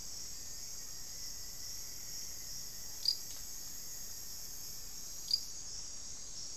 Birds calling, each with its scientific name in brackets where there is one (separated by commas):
Black-faced Antthrush (Formicarius analis), Rufous-fronted Antthrush (Formicarius rufifrons)